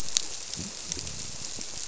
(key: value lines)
label: biophony
recorder: SoundTrap 300